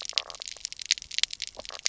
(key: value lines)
label: biophony, knock croak
recorder: SoundTrap 300